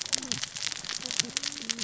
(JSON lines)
{"label": "biophony, cascading saw", "recorder": "SoundTrap 600 or HydroMoth"}